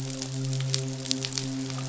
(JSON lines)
{"label": "biophony, midshipman", "recorder": "SoundTrap 500"}